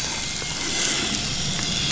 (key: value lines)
label: anthrophony, boat engine
recorder: SoundTrap 500